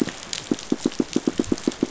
{"label": "biophony, pulse", "recorder": "SoundTrap 500"}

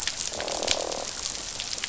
{"label": "biophony, croak", "recorder": "SoundTrap 500"}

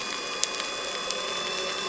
{"label": "anthrophony, boat engine", "recorder": "SoundTrap 300"}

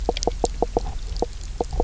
{"label": "biophony, knock croak", "recorder": "SoundTrap 300"}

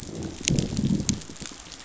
{"label": "biophony, growl", "recorder": "SoundTrap 500"}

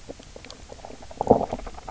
{"label": "biophony, knock croak", "recorder": "SoundTrap 300"}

